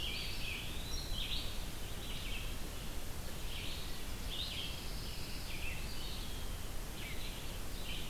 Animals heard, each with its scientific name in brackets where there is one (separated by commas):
Red-eyed Vireo (Vireo olivaceus), Eastern Wood-Pewee (Contopus virens), Pine Warbler (Setophaga pinus)